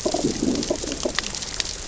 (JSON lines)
{"label": "biophony, growl", "recorder": "SoundTrap 600 or HydroMoth"}